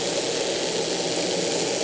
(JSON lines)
{"label": "anthrophony, boat engine", "recorder": "HydroMoth"}